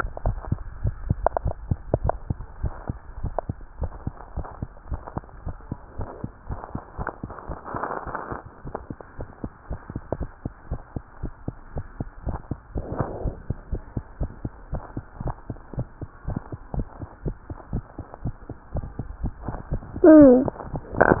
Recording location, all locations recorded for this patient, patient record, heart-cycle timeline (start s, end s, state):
tricuspid valve (TV)
aortic valve (AV)+pulmonary valve (PV)+tricuspid valve (TV)+mitral valve (MV)
#Age: Child
#Sex: Male
#Height: 101.0 cm
#Weight: 16.8 kg
#Pregnancy status: False
#Murmur: Absent
#Murmur locations: nan
#Most audible location: nan
#Systolic murmur timing: nan
#Systolic murmur shape: nan
#Systolic murmur grading: nan
#Systolic murmur pitch: nan
#Systolic murmur quality: nan
#Diastolic murmur timing: nan
#Diastolic murmur shape: nan
#Diastolic murmur grading: nan
#Diastolic murmur pitch: nan
#Diastolic murmur quality: nan
#Outcome: Abnormal
#Campaign: 2015 screening campaign
0.00	9.15	unannotated
9.15	9.26	S1
9.26	9.41	systole
9.41	9.49	S2
9.49	9.66	diastole
9.66	9.79	S1
9.79	9.92	systole
9.92	10.02	S2
10.02	10.19	diastole
10.19	10.29	S1
10.29	10.42	systole
10.42	10.50	S2
10.50	10.70	diastole
10.70	10.78	S1
10.78	10.93	systole
10.93	11.00	S2
11.00	11.21	diastole
11.21	11.33	S1
11.33	11.44	systole
11.44	11.55	S2
11.55	11.71	diastole
11.71	11.84	S1
11.84	11.93	systole
11.95	12.07	S2
12.07	12.22	diastole
12.22	12.33	S1
12.33	12.48	systole
12.48	12.57	S2
12.57	12.71	diastole
12.71	12.85	S1
12.85	12.99	systole
12.99	13.05	S2
13.05	13.22	diastole
13.22	13.34	S1
13.34	13.47	systole
13.47	13.56	S2
13.56	13.71	diastole
13.71	13.79	S1
13.79	13.93	systole
13.93	14.04	S2
14.04	14.19	diastole
14.19	14.29	S1
14.29	14.43	systole
14.43	14.51	S2
14.51	14.69	diastole
14.69	14.81	S1
14.81	14.93	systole
14.93	15.03	S2
15.03	15.21	diastole
15.21	15.34	S1
15.34	15.46	systole
15.46	15.55	S2
15.55	15.72	diastole
15.72	15.85	S1
15.85	15.99	systole
15.99	16.07	S2
16.07	16.24	diastole
16.24	16.35	S1
16.35	16.51	systole
16.51	16.58	S2
16.58	16.74	diastole
16.74	21.20	unannotated